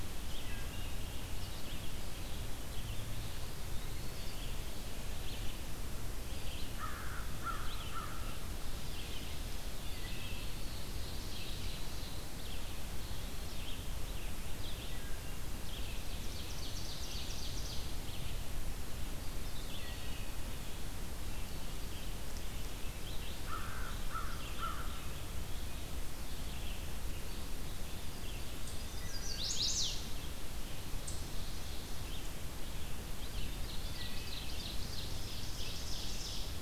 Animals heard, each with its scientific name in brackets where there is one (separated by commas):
Chestnut-sided Warbler (Setophaga pensylvanica), American Crow (Corvus brachyrhynchos), Red-eyed Vireo (Vireo olivaceus), Wood Thrush (Hylocichla mustelina), Ovenbird (Seiurus aurocapilla), Eastern Wood-Pewee (Contopus virens), Eastern Chipmunk (Tamias striatus)